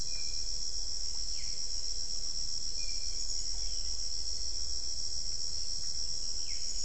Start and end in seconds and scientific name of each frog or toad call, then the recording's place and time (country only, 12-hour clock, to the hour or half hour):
none
Brazil, 6pm